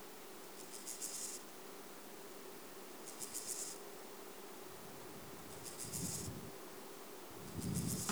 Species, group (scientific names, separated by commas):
Chorthippus dorsatus, Orthoptera